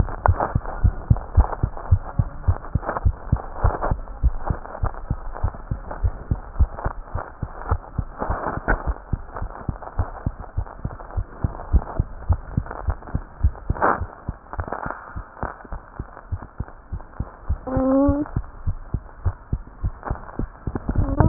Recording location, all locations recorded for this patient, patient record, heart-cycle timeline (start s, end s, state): tricuspid valve (TV)
aortic valve (AV)+pulmonary valve (PV)+tricuspid valve (TV)+mitral valve (MV)
#Age: Child
#Sex: Female
#Height: 87.0 cm
#Weight: 10.2 kg
#Pregnancy status: False
#Murmur: Absent
#Murmur locations: nan
#Most audible location: nan
#Systolic murmur timing: nan
#Systolic murmur shape: nan
#Systolic murmur grading: nan
#Systolic murmur pitch: nan
#Systolic murmur quality: nan
#Diastolic murmur timing: nan
#Diastolic murmur shape: nan
#Diastolic murmur grading: nan
#Diastolic murmur pitch: nan
#Diastolic murmur quality: nan
#Outcome: Normal
#Campaign: 2015 screening campaign
0.00	16.26	unannotated
16.26	16.31	diastole
16.31	16.37	S1
16.37	16.58	systole
16.58	16.64	S2
16.64	16.91	diastole
16.91	16.98	S1
16.98	17.19	systole
17.19	17.24	S2
17.24	17.48	diastole
17.48	17.56	S1
17.56	17.75	systole
17.75	17.81	S2
17.81	18.04	diastole
18.04	18.16	S1
18.16	18.35	systole
18.35	18.40	S2
18.40	18.66	diastole
18.66	18.74	S1
18.74	18.92	systole
18.92	18.99	S2
18.99	19.25	diastole
19.25	19.32	S1
19.32	19.52	systole
19.52	19.61	S2
19.61	19.81	diastole
19.81	19.92	S1
19.92	20.10	systole
20.10	20.16	S2
20.16	20.38	diastole
20.38	20.45	S1
20.45	20.65	systole
20.65	20.71	S2
20.71	20.74	diastole
20.74	21.28	unannotated